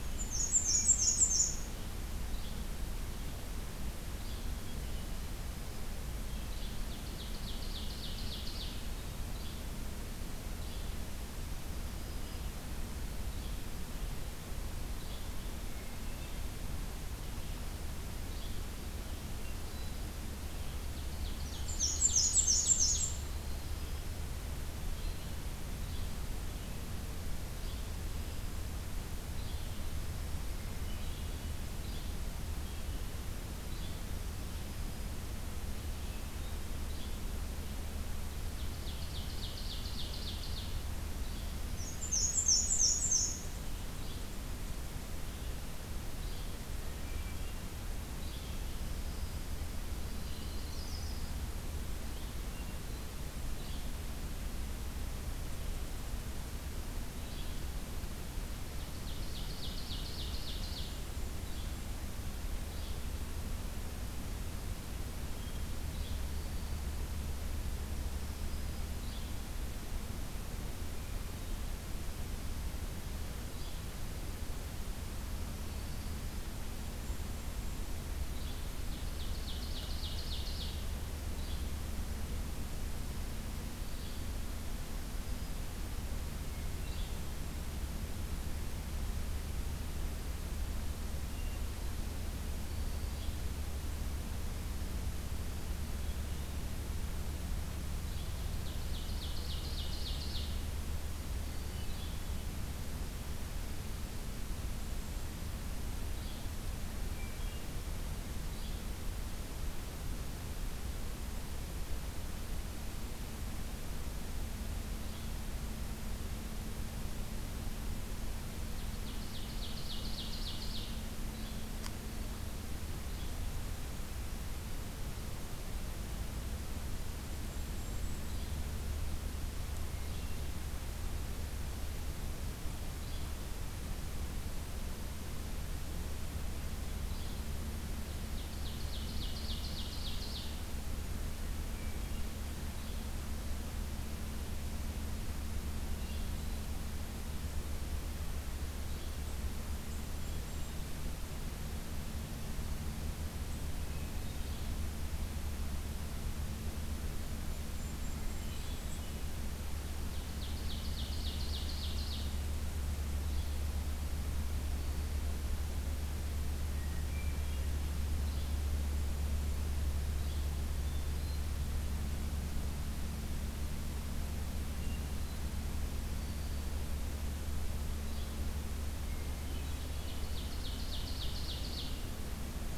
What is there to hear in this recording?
Black-and-white Warbler, Hermit Thrush, Yellow-bellied Flycatcher, Ovenbird, Black-throated Green Warbler, Yellow-rumped Warbler, Golden-crowned Kinglet